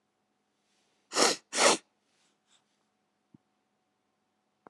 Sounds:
Sniff